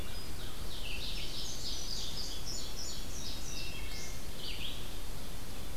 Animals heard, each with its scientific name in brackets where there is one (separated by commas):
Indigo Bunting (Passerina cyanea), Red-eyed Vireo (Vireo olivaceus), Wood Thrush (Hylocichla mustelina), Ovenbird (Seiurus aurocapilla)